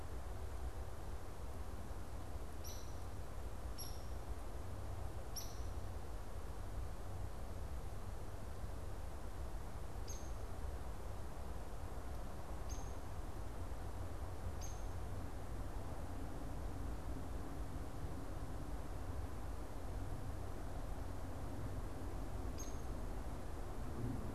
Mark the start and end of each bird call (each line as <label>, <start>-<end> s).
Hairy Woodpecker (Dryobates villosus), 2.4-5.6 s
Hairy Woodpecker (Dryobates villosus), 10.0-10.3 s
Hairy Woodpecker (Dryobates villosus), 12.4-15.0 s
Hairy Woodpecker (Dryobates villosus), 22.3-22.9 s